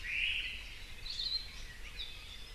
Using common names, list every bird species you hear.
Omao, Hawaii Akepa, Apapane